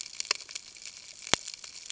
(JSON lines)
{"label": "ambient", "recorder": "HydroMoth"}